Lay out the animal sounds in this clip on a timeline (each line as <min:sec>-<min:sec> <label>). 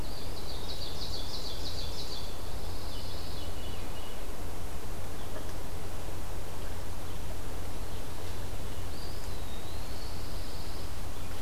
0:00.0-0:02.3 Ovenbird (Seiurus aurocapilla)
0:02.2-0:03.5 Pine Warbler (Setophaga pinus)
0:02.8-0:04.3 Veery (Catharus fuscescens)
0:08.8-0:10.2 Eastern Wood-Pewee (Contopus virens)
0:09.8-0:11.0 Pine Warbler (Setophaga pinus)